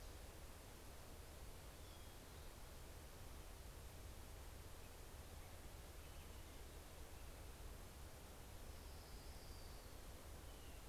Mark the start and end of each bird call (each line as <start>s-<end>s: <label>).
7.7s-10.9s: Orange-crowned Warbler (Leiothlypis celata)